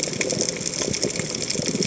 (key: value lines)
label: biophony, chatter
recorder: HydroMoth